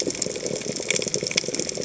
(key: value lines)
label: biophony, chatter
recorder: HydroMoth